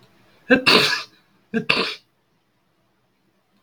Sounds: Sneeze